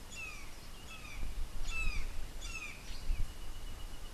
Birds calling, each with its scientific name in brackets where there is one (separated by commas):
Brown Jay (Psilorhinus morio)